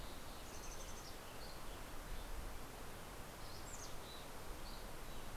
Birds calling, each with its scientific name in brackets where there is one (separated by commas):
Dusky Flycatcher (Empidonax oberholseri), Mountain Chickadee (Poecile gambeli)